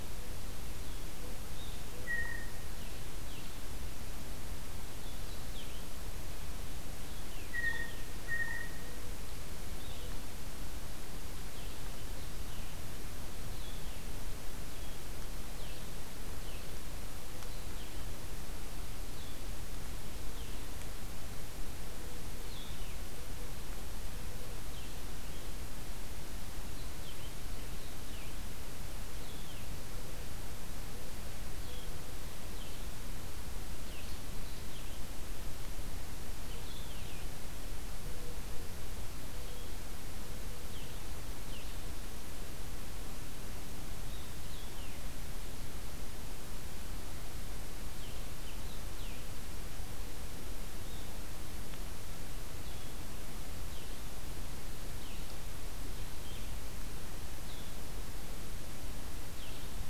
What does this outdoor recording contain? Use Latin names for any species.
Vireo solitarius, Cyanocitta cristata, Zenaida macroura